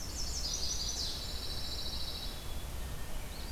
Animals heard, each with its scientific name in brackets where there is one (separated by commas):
Pine Warbler (Setophaga pinus), Red-eyed Vireo (Vireo olivaceus), Blackburnian Warbler (Setophaga fusca), Chestnut-sided Warbler (Setophaga pensylvanica)